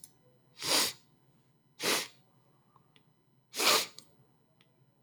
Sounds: Sniff